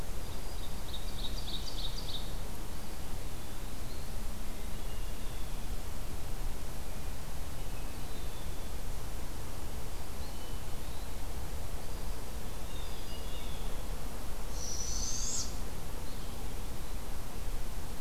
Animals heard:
Eastern Wood-Pewee (Contopus virens), Hermit Thrush (Catharus guttatus), Blue Jay (Cyanocitta cristata), Barred Owl (Strix varia), Ovenbird (Seiurus aurocapilla)

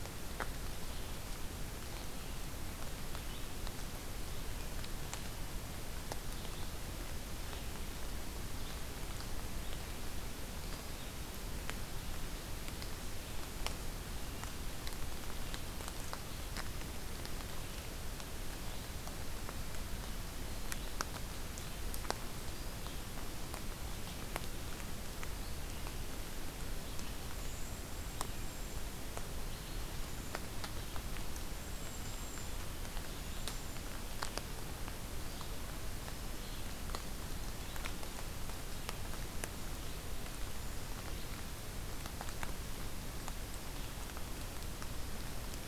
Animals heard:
Cedar Waxwing (Bombycilla cedrorum), Red-eyed Vireo (Vireo olivaceus)

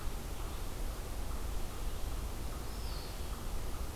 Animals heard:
Eastern Wood-Pewee (Contopus virens), unknown mammal

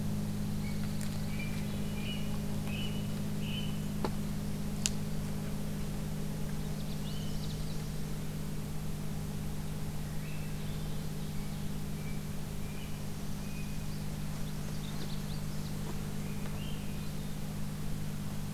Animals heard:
Nashville Warbler (Leiothlypis ruficapilla), Northern Parula (Setophaga americana), Canada Warbler (Cardellina canadensis), Swainson's Thrush (Catharus ustulatus), Blue Jay (Cyanocitta cristata), Pine Warbler (Setophaga pinus)

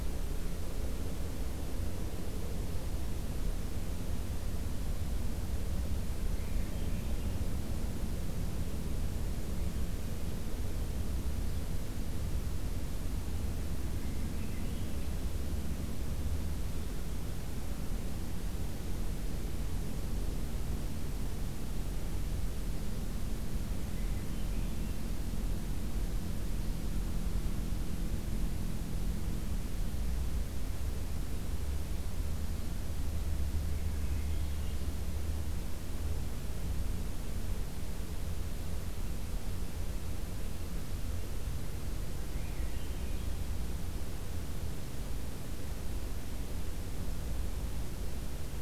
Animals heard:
Swainson's Thrush (Catharus ustulatus)

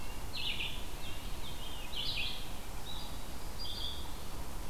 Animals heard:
Red-breasted Nuthatch (Sitta canadensis), Red-eyed Vireo (Vireo olivaceus)

